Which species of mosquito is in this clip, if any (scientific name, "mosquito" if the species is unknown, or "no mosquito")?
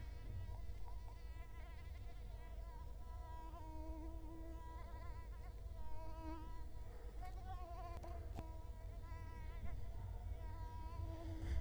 Culex quinquefasciatus